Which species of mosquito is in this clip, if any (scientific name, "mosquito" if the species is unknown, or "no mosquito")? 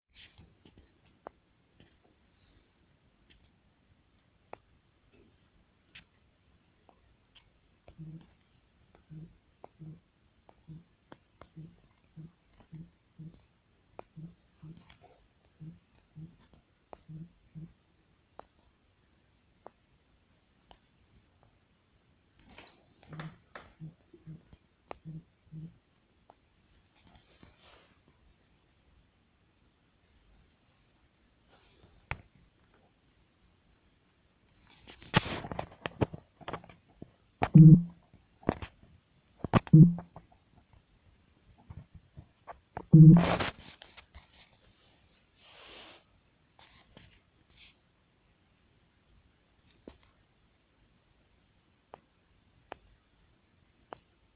no mosquito